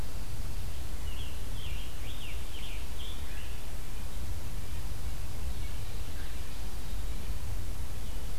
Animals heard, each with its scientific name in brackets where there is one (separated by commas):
Scarlet Tanager (Piranga olivacea)